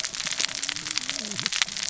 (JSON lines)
{"label": "biophony, cascading saw", "recorder": "SoundTrap 600 or HydroMoth"}